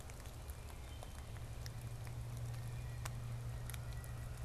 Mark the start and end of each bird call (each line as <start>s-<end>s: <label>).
2.3s-3.1s: Wood Thrush (Hylocichla mustelina)